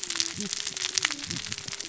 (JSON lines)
{"label": "biophony, cascading saw", "recorder": "SoundTrap 600 or HydroMoth"}